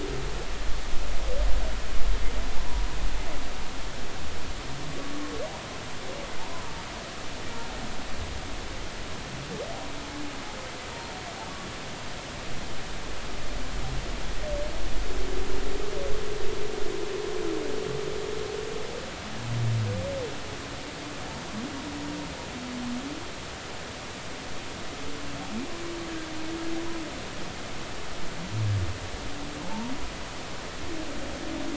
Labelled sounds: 2.6	2.9	humpback whale, 0.93 to 1.1 kHz
6.4	6.8	humpback whale, 0.83 to 1.1 kHz
29.6	29.9	humpback whale, 0.83 to 0.99 kHz

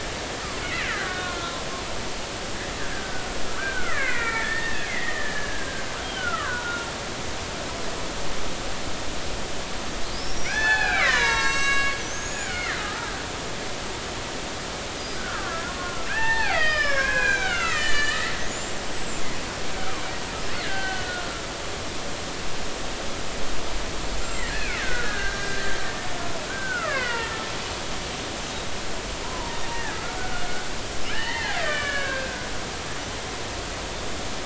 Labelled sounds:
0.9	1.6	killer whale, Bigg's (transient), 1.3 to 2.1 kHz
2.9	3.3	killer whale, Bigg's (transient), 1.4 to 1.7 kHz
3.8	6.9	killer whale, Bigg's (transient), 0.93 to 3.3 kHz
10.1	13.1	killer whale, Bigg's (transient), 0.80 to 7.8 kHz
15.1	19.2	killer whale, Bigg's (transient), 0.80 to 7.8 kHz
19.7	20.0	killer whale, Bigg's (transient), 1.0 to 1.6 kHz
20.6	21.4	killer whale, Bigg's (transient), 1.3 to 4.3 kHz
24.2	25.8	killer whale, Bigg's (transient), 1.3 to 7.6 kHz
26.5	27.4	killer whale, Bigg's (transient), 0.86 to 3.0 kHz
29.2	30.4	killer whale, Bigg's (transient), 0.86 to 1.9 kHz
31.1	32.4	killer whale, Bigg's (transient), 1.0 to 4.4 kHz

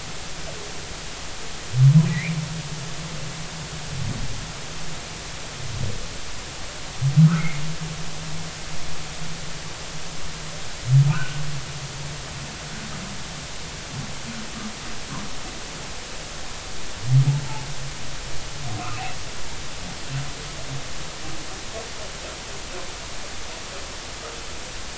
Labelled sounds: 2.1	2.4	humpback whale, 1.8 to 2.5 kHz
7.2	7.6	humpback whale, 1.2 to 2.3 kHz
11.1	11.4	humpback whale, 1.2 to 1.6 kHz

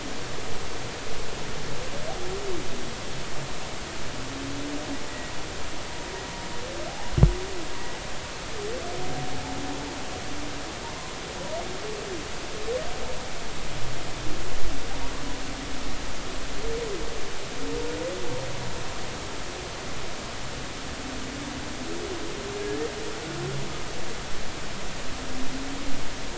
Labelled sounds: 5.1	5.3	humpback whale, 1.9 to 2.0 kHz

